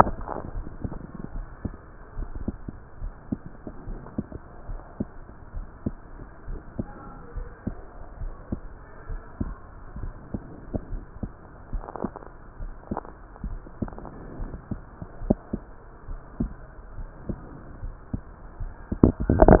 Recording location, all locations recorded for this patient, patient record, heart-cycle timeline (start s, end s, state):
aortic valve (AV)
aortic valve (AV)+pulmonary valve (PV)+tricuspid valve (TV)+mitral valve (MV)
#Age: nan
#Sex: Female
#Height: nan
#Weight: nan
#Pregnancy status: True
#Murmur: Absent
#Murmur locations: nan
#Most audible location: nan
#Systolic murmur timing: nan
#Systolic murmur shape: nan
#Systolic murmur grading: nan
#Systolic murmur pitch: nan
#Systolic murmur quality: nan
#Diastolic murmur timing: nan
#Diastolic murmur shape: nan
#Diastolic murmur grading: nan
#Diastolic murmur pitch: nan
#Diastolic murmur quality: nan
#Outcome: Normal
#Campaign: 2015 screening campaign
0.00	0.26	unannotated
0.26	0.53	diastole
0.53	0.66	S1
0.66	0.82	systole
0.82	0.94	S2
0.94	1.33	diastole
1.33	1.46	S1
1.46	1.61	systole
1.61	1.74	S2
1.74	2.15	diastole
2.15	2.30	S1
2.30	2.45	systole
2.45	2.58	S2
2.58	3.02	diastole
3.02	3.14	S1
3.14	3.29	systole
3.29	3.40	S2
3.40	3.85	diastole
3.85	3.98	S1
3.98	4.18	systole
4.18	4.30	S2
4.30	4.68	diastole
4.68	4.82	S1
4.82	5.00	systole
5.00	5.10	S2
5.10	5.51	diastole
5.51	5.66	S1
5.66	5.80	systole
5.80	5.96	S2
5.96	6.45	diastole
6.45	6.60	S1
6.60	6.76	systole
6.76	6.90	S2
6.90	7.36	diastole
7.36	7.48	S1
7.48	7.68	systole
7.68	7.76	S2
7.76	8.20	diastole
8.20	8.32	S1
8.32	8.49	systole
8.49	8.62	S2
8.62	9.10	diastole
9.10	9.22	S1
9.22	9.38	systole
9.38	9.52	S2
9.52	9.98	diastole
9.98	10.14	S1
10.14	10.30	systole
10.30	10.44	S2
10.44	10.89	diastole
10.89	11.02	S1
11.02	11.21	systole
11.21	11.32	S2
11.32	11.70	diastole
11.70	11.84	S1
11.84	12.01	systole
12.01	12.14	S2
12.14	12.54	diastole
12.54	12.74	S1
12.74	12.90	systole
12.90	13.03	S2
13.03	13.41	diastole
13.41	13.56	S1
13.56	13.78	systole
13.78	13.92	S2
13.92	14.39	diastole
14.39	19.60	unannotated